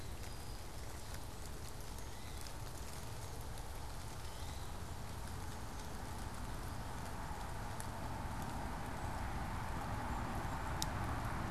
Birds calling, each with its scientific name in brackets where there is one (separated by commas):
unidentified bird